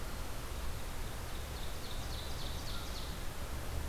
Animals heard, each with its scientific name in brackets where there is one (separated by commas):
Ovenbird (Seiurus aurocapilla)